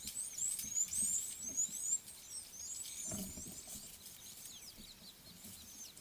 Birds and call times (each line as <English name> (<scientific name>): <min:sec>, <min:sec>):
Red-cheeked Cordonbleu (Uraeginthus bengalus): 0:01.6